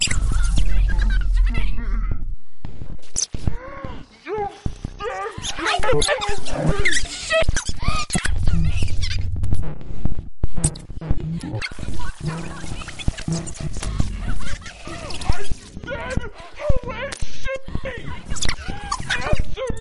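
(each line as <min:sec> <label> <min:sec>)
0:00.0 Synthetic noise. 0:04.1
0:00.5 A deep, distorted voice. 0:02.4
0:04.2 A deep distorted voice is speaking. 0:07.1
0:05.5 A distorted female voice is speaking. 0:09.4
0:09.4 Synthetic noise effects. 0:19.8
0:12.1 A barely audible distorted female voice is heard. 0:15.3
0:15.3 A deep distorted voice is speaking. 0:19.8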